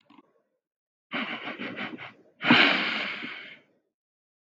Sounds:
Sniff